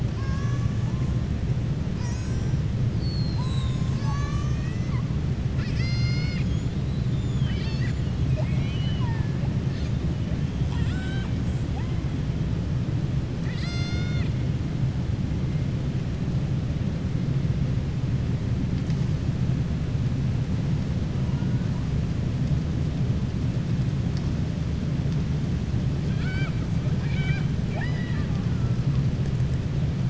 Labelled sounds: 0.1	0.7	killer whale, southern resident, 1.0 to 2.9 kHz
1.9	2.3	killer whale, southern resident, 0.93 to 2.6 kHz
8.2	9.4	killer whale, southern resident, 0.62 to 4.2 kHz
10.6	11.3	killer whale, southern resident, 0.78 to 7.8 kHz
26.0	26.6	killer whale, southern resident, 0.78 to 5.3 kHz
26.9	28.4	killer whale, southern resident, 0.64 to 5.0 kHz

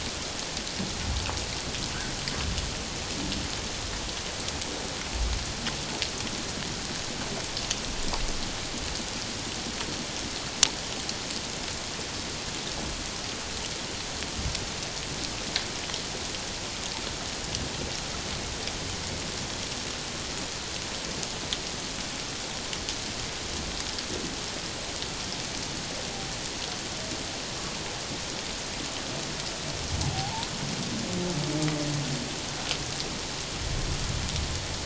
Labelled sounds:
30.1	30.5	humpback whale, 0.78 to 1.1 kHz

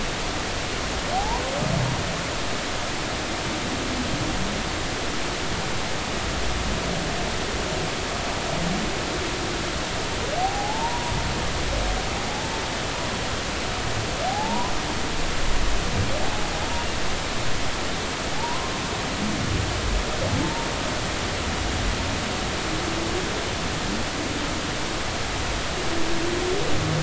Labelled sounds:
1.1	1.4	humpback whale, 0.80 to 1.1 kHz
10.4	11.1	humpback whale, 0.80 to 1.0 kHz
14.3	14.7	humpback whale, 0.80 to 1.1 kHz
18.3	18.7	humpback whale, 0.80 to 1.1 kHz
20.4	20.7	humpback whale, 0.86 to 0.99 kHz

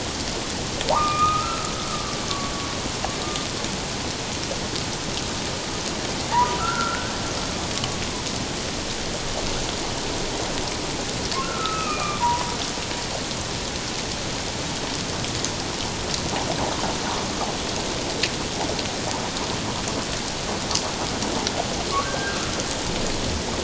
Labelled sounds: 0.9	2.2	humpback whale, 0.78 to 2.5 kHz
6.3	7.1	humpback whale, 0.78 to 1.6 kHz
7.7	8.0	humpback whale, 1.1 to 1.2 kHz
11.4	12.5	humpback whale, 0.88 to 2.7 kHz
22.0	22.4	humpback whale, 1.2 to 1.7 kHz

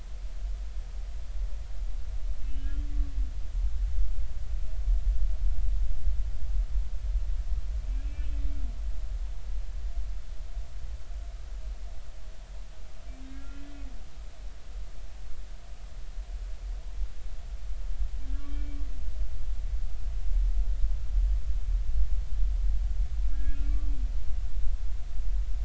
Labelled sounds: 8.0	8.3	humpback whale, 2.5 to 2.7 kHz
13.3	13.8	humpback whale, 1.3 to 3.2 kHz
18.4	18.8	humpback whale, 2.2 to 2.4 kHz
23.3	23.8	humpback whale, 1.6 to 2.6 kHz

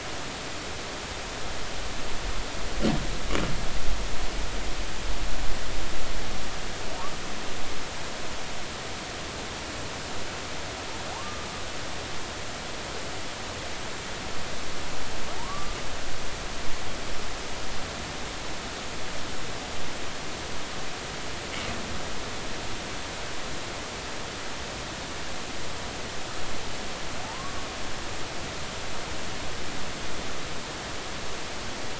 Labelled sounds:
11.1	11.5	humpback whale, 0.80 to 1.2 kHz
15.4	15.8	humpback whale, 0.80 to 1.2 kHz
27.2	27.7	humpback whale, 0.80 to 1.2 kHz

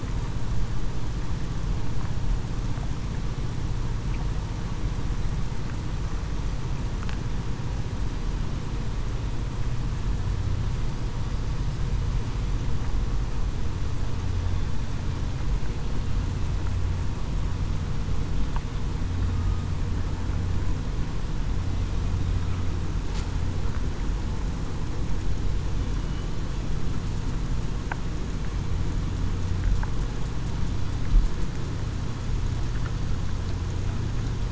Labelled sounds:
19.3	19.7	killer whale, southern resident, 1.2 to 1.3 kHz

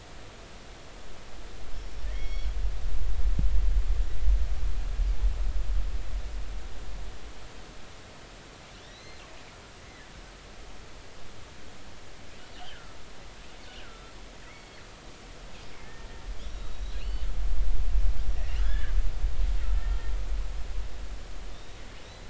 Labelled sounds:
1.7	2.5	killer whale, northern resident, G clan, GI subclan, call N23i, 1.7 to 5.7 kHz
8.8	9.2	killer whale, northern resident, G clan, GG subclan, call N28, 3.3 to 4.2 kHz
9.8	10.1	killer whale, northern resident, G clan, 1.7 to 2.2 kHz
12.6	13.0	killer whale, northern resident, G clan, GI subclan, call N25, 1.3 to 3.3 kHz
13.8	14.1	killer whale, northern resident, G clan, GI subclan, call N25, 1.3 to 1.6 kHz
14.4	14.8	killer whale, northern resident, G clan, GI subclan, call N23i, 1.8 to 2.3 kHz
16.7	17.2	killer whale, northern resident, G clan, GI subclan, call N23i, 2.4 to 4.6 kHz
18.5	18.9	killer whale, northern resident, G clan, 1.3 to 1.8 kHz
21.5	22.2	killer whale, northern resident, G clan, GG subclan, call N28, 3.5 to 4.1 kHz

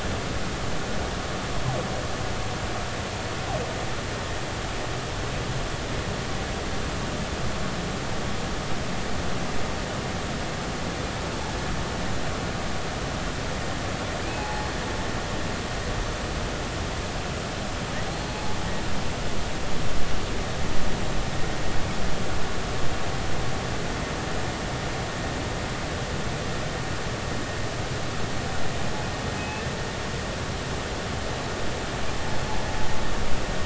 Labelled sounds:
14.3	14.7	humpback whale, 0.80 to 4.3 kHz
18.1	18.6	humpback whale, 0.80 to 4.4 kHz
29.4	29.6	humpback whale, 2.5 to 2.7 kHz

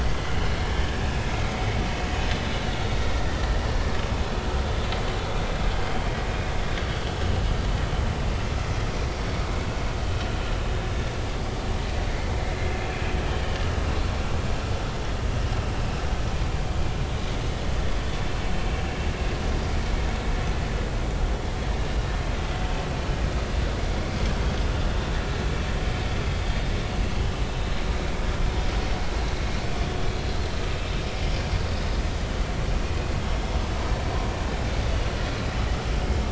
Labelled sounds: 0.0	0.6	vessel noise, 2.0 to 3.2 kHz
2.0	2.3	vessel noise, 6.5 to 6.8 kHz
12.9	13.1	vessel noise, 2.3 to 2.7 kHz
30.7	31.0	vessel noise, 2.5 to 2.7 kHz

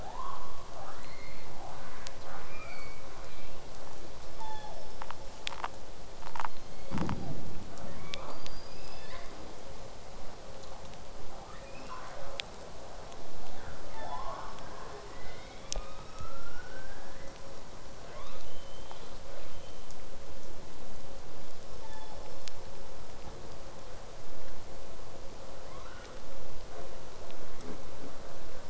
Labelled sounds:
4.4	4.9	killer whale, southern resident, J pod, call S06, 0.46 to 7.1 kHz
6.3	7.4	killer whale, southern resident, call S01, 0.46 to 7.3 kHz
7.8	8.3	killer whale, southern resident, 0.41 to 3.6 kHz
8.3	9.4	killer whale, southern resident, L pod, call S19, 0.37 to 5.2 kHz
11.2	11.9	killer whale, southern resident, 0.46 to 5.7 kHz
15.1	17.4	killer whale, southern resident, 1.0 to 5.2 kHz
18.0	19.9	killer whale, southern resident, 0.60 to 6.4 kHz
21.8	22.4	killer whale, southern resident, 0.65 to 3.8 kHz
25.6	26.1	killer whale, southern resident, 0.74 to 4.3 kHz

